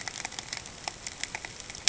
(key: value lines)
label: ambient
recorder: HydroMoth